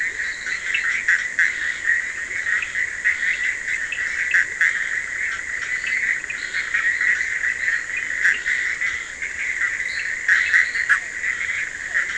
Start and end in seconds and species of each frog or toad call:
0.0	3.3	fine-lined tree frog
0.0	3.8	Scinax perereca
0.0	12.1	Bischoff's tree frog
6.0	7.1	fine-lined tree frog
8.2	11.1	fine-lined tree frog

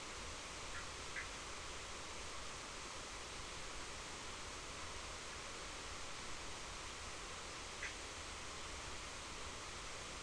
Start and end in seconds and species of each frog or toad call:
1.0	1.7	Bischoff's tree frog
7.8	8.2	Bischoff's tree frog

